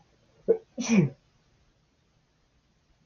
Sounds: Sneeze